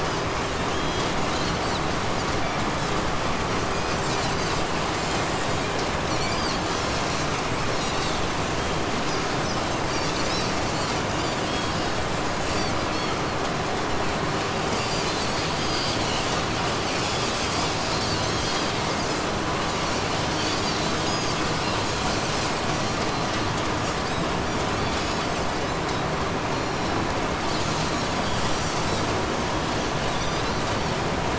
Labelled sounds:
0.4	13.5	Pacific white-sided dolphin, 1.3 to 8.0 kHz
14.3	31.3	Pacific white-sided dolphin, 1.3 to 8.0 kHz

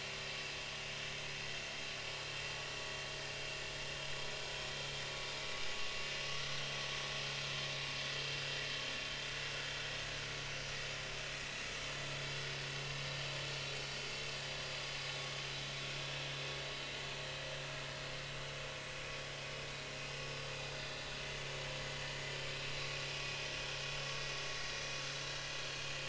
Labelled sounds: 21.4	21.6	vessel noise, 2.3 to 2.4 kHz
25.7	26.0	vessel noise, 4.1 to 4.3 kHz

